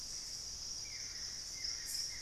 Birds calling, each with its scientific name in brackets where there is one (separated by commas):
Buff-throated Woodcreeper (Xiphorhynchus guttatus), Hauxwell's Thrush (Turdus hauxwelli), Gray Antbird (Cercomacra cinerascens)